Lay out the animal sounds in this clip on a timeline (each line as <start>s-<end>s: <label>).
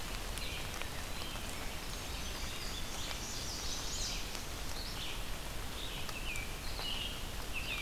0.0s-7.8s: Red-eyed Vireo (Vireo olivaceus)
1.3s-3.9s: Indigo Bunting (Passerina cyanea)
3.1s-4.3s: Chestnut-sided Warbler (Setophaga pensylvanica)
6.0s-7.8s: American Robin (Turdus migratorius)